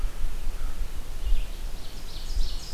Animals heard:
American Crow (Corvus brachyrhynchos), Red-eyed Vireo (Vireo olivaceus), Ovenbird (Seiurus aurocapilla)

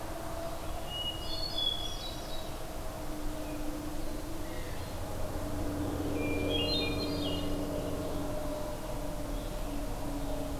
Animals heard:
Blue Jay (Cyanocitta cristata), Hermit Thrush (Catharus guttatus)

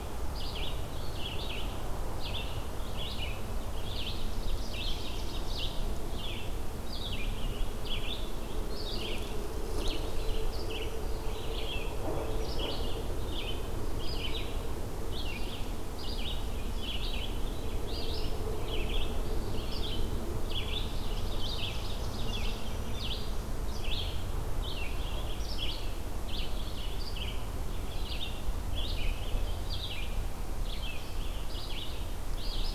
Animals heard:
Black-throated Green Warbler (Setophaga virens), Ovenbird (Seiurus aurocapilla), Red-eyed Vireo (Vireo olivaceus)

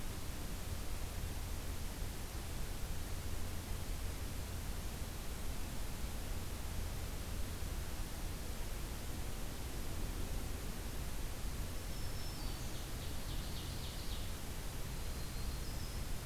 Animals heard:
Black-throated Green Warbler (Setophaga virens), Yellow-rumped Warbler (Setophaga coronata), Ovenbird (Seiurus aurocapilla)

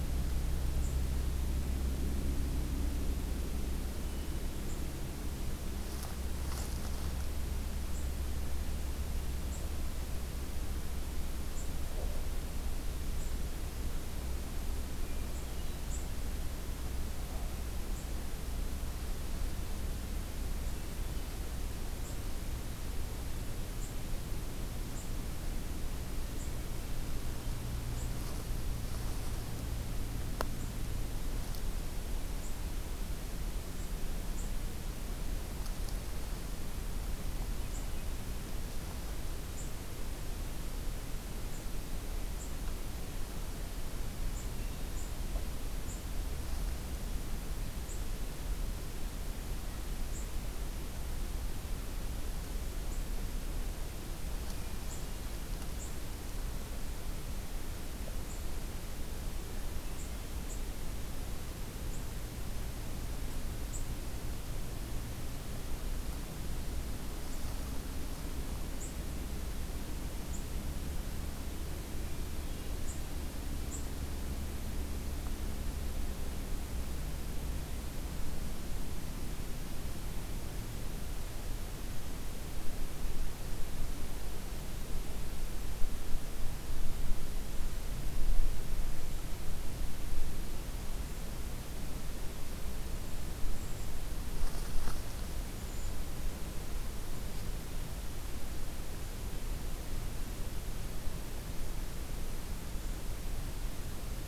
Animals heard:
Hermit Thrush (Catharus guttatus), Brown Creeper (Certhia americana)

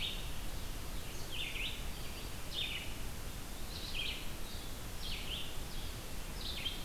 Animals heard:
Red-eyed Vireo (Vireo olivaceus), Blue-headed Vireo (Vireo solitarius), Black-throated Green Warbler (Setophaga virens)

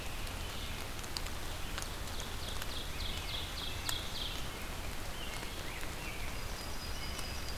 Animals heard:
American Robin (Turdus migratorius), Red-eyed Vireo (Vireo olivaceus), Yellow-rumped Warbler (Setophaga coronata), Rose-breasted Grosbeak (Pheucticus ludovicianus), Ovenbird (Seiurus aurocapilla)

